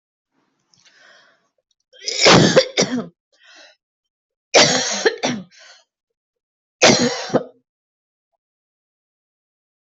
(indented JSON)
{
  "expert_labels": [
    {
      "quality": "ok",
      "cough_type": "dry",
      "dyspnea": false,
      "wheezing": false,
      "stridor": false,
      "choking": false,
      "congestion": false,
      "nothing": true,
      "diagnosis": "COVID-19",
      "severity": "mild"
    }
  ]
}